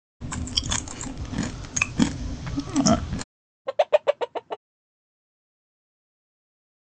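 At 0.2 seconds, there is chewing. Then at 3.65 seconds, a chicken can be heard.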